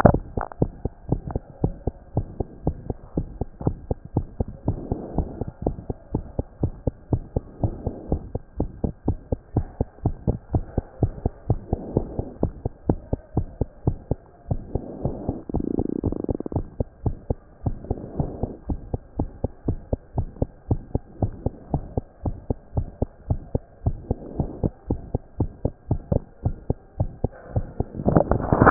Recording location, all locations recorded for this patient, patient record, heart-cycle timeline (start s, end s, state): mitral valve (MV)
aortic valve (AV)+pulmonary valve (PV)+tricuspid valve (TV)+mitral valve (MV)
#Age: Child
#Sex: Female
#Height: 104.0 cm
#Weight: 15.1 kg
#Pregnancy status: False
#Murmur: Present
#Murmur locations: aortic valve (AV)+mitral valve (MV)+pulmonary valve (PV)
#Most audible location: pulmonary valve (PV)
#Systolic murmur timing: Early-systolic
#Systolic murmur shape: Plateau
#Systolic murmur grading: II/VI
#Systolic murmur pitch: Low
#Systolic murmur quality: Blowing
#Diastolic murmur timing: nan
#Diastolic murmur shape: nan
#Diastolic murmur grading: nan
#Diastolic murmur pitch: nan
#Diastolic murmur quality: nan
#Outcome: Abnormal
#Campaign: 2014 screening campaign
0.20	0.36	systole
0.36	0.44	S2
0.44	0.60	diastole
0.60	0.72	S1
0.72	0.82	systole
0.82	0.92	S2
0.92	1.10	diastole
1.10	1.22	S1
1.22	1.32	systole
1.32	1.42	S2
1.42	1.62	diastole
1.62	1.74	S1
1.74	1.86	systole
1.86	1.94	S2
1.94	2.16	diastole
2.16	2.26	S1
2.26	2.38	systole
2.38	2.46	S2
2.46	2.64	diastole
2.64	2.76	S1
2.76	2.88	systole
2.88	2.96	S2
2.96	3.16	diastole
3.16	3.28	S1
3.28	3.38	systole
3.38	3.46	S2
3.46	3.64	diastole
3.64	3.76	S1
3.76	3.88	systole
3.88	3.96	S2
3.96	4.14	diastole
4.14	4.26	S1
4.26	4.38	systole
4.38	4.48	S2
4.48	4.66	diastole
4.66	4.78	S1
4.78	4.90	systole
4.90	5.00	S2
5.00	5.16	diastole
5.16	5.28	S1
5.28	5.40	systole
5.40	5.48	S2
5.48	5.64	diastole
5.64	5.76	S1
5.76	5.88	systole
5.88	5.96	S2
5.96	6.12	diastole
6.12	6.24	S1
6.24	6.36	systole
6.36	6.44	S2
6.44	6.62	diastole
6.62	6.72	S1
6.72	6.86	systole
6.86	6.94	S2
6.94	7.12	diastole
7.12	7.22	S1
7.22	7.34	systole
7.34	7.44	S2
7.44	7.62	diastole
7.62	7.74	S1
7.74	7.84	systole
7.84	7.94	S2
7.94	8.10	diastole
8.10	8.22	S1
8.22	8.32	systole
8.32	8.40	S2
8.40	8.58	diastole
8.58	8.70	S1
8.70	8.82	systole
8.82	8.92	S2
8.92	9.06	diastole
9.06	9.18	S1
9.18	9.30	systole
9.30	9.38	S2
9.38	9.56	diastole
9.56	9.66	S1
9.66	9.78	systole
9.78	9.88	S2
9.88	10.04	diastole
10.04	10.16	S1
10.16	10.26	systole
10.26	10.38	S2
10.38	10.52	diastole
10.52	10.64	S1
10.64	10.76	systole
10.76	10.84	S2
10.84	11.02	diastole
11.02	11.14	S1
11.14	11.24	systole
11.24	11.32	S2
11.32	11.48	diastole
11.48	11.60	S1
11.60	11.70	systole
11.70	11.80	S2
11.80	11.94	diastole
11.94	12.06	S1
12.06	12.18	systole
12.18	12.26	S2
12.26	12.42	diastole
12.42	12.52	S1
12.52	12.64	systole
12.64	12.72	S2
12.72	12.88	diastole
12.88	12.98	S1
12.98	13.10	systole
13.10	13.20	S2
13.20	13.36	diastole
13.36	13.48	S1
13.48	13.60	systole
13.60	13.68	S2
13.68	13.86	diastole
13.86	13.98	S1
13.98	14.10	systole
14.10	14.18	S2
14.18	14.50	diastole
14.50	14.62	S1
14.62	14.74	systole
14.74	14.82	S2
14.82	15.04	diastole
15.04	15.16	S1
15.16	15.28	systole
15.28	15.38	S2
15.38	15.54	diastole
15.54	15.64	S1
15.64	15.76	systole
15.76	15.86	S2
15.86	16.04	diastole
16.04	16.16	S1
16.16	16.28	systole
16.28	16.36	S2
16.36	16.54	diastole
16.54	16.66	S1
16.66	16.78	systole
16.78	16.86	S2
16.86	17.04	diastole
17.04	17.16	S1
17.16	17.28	systole
17.28	17.38	S2
17.38	17.64	diastole
17.64	17.76	S1
17.76	17.88	systole
17.88	17.98	S2
17.98	18.18	diastole
18.18	18.30	S1
18.30	18.42	systole
18.42	18.50	S2
18.50	18.68	diastole
18.68	18.80	S1
18.80	18.92	systole
18.92	19.00	S2
19.00	19.18	diastole
19.18	19.30	S1
19.30	19.42	systole
19.42	19.50	S2
19.50	19.66	diastole
19.66	19.78	S1
19.78	19.90	systole
19.90	20.00	S2
20.00	20.16	diastole
20.16	20.28	S1
20.28	20.40	systole
20.40	20.50	S2
20.50	20.70	diastole
20.70	20.80	S1
20.80	20.94	systole
20.94	21.02	S2
21.02	21.20	diastole
21.20	21.32	S1
21.32	21.44	systole
21.44	21.54	S2
21.54	21.72	diastole
21.72	21.84	S1
21.84	21.96	systole
21.96	22.04	S2
22.04	22.24	diastole
22.24	22.36	S1
22.36	22.48	systole
22.48	22.56	S2
22.56	22.76	diastole
22.76	22.88	S1
22.88	23.00	systole
23.00	23.08	S2
23.08	23.28	diastole
23.28	23.40	S1
23.40	23.54	systole
23.54	23.62	S2
23.62	23.84	diastole
23.84	23.98	S1
23.98	24.08	systole
24.08	24.18	S2
24.18	24.38	diastole
24.38	24.50	S1
24.50	24.62	systole
24.62	24.72	S2
24.72	24.90	diastole
24.90	25.00	S1
25.00	25.12	systole
25.12	25.20	S2
25.20	25.38	diastole
25.38	25.50	S1
25.50	25.64	systole
25.64	25.72	S2
25.72	25.90	diastole
25.90	26.00	S1
26.00	26.12	systole
26.12	26.22	S2
26.22	26.44	diastole
26.44	26.56	S1
26.56	26.68	systole
26.68	26.78	S2
26.78	26.98	diastole
26.98	27.10	S1
27.10	27.22	systole
27.22	27.32	S2
27.32	27.54	diastole
27.54	27.66	S1
27.66	27.78	systole
27.78	27.86	S2
27.86	28.06	diastole
28.06	28.24	S1
28.24	28.32	systole
28.32	28.40	S2
28.40	28.58	diastole
28.58	28.70	S1